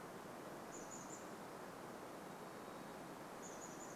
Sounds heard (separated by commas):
Varied Thrush song, Chestnut-backed Chickadee call